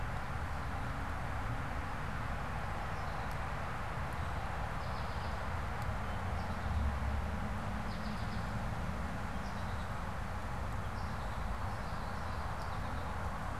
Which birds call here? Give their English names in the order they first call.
American Goldfinch, Common Yellowthroat